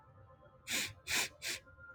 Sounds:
Sniff